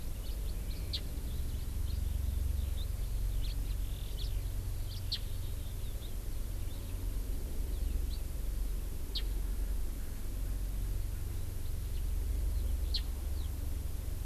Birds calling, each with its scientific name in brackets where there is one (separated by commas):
House Finch (Haemorhous mexicanus), Eurasian Skylark (Alauda arvensis), Japanese Bush Warbler (Horornis diphone)